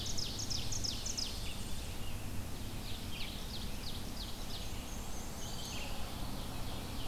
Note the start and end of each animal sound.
0.0s-1.5s: Ovenbird (Seiurus aurocapilla)
0.3s-2.0s: Tennessee Warbler (Leiothlypis peregrina)
1.4s-7.1s: Red-eyed Vireo (Vireo olivaceus)
2.5s-4.7s: Ovenbird (Seiurus aurocapilla)
4.5s-5.9s: Black-and-white Warbler (Mniotilta varia)
5.7s-7.1s: Ovenbird (Seiurus aurocapilla)

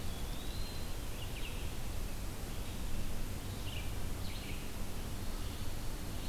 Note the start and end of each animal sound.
0.0s-1.3s: Eastern Wood-Pewee (Contopus virens)
0.0s-6.3s: Red-eyed Vireo (Vireo olivaceus)

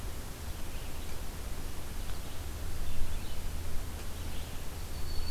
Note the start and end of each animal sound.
0.0s-5.3s: Red-eyed Vireo (Vireo olivaceus)

